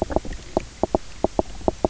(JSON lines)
{"label": "biophony, knock croak", "recorder": "SoundTrap 300"}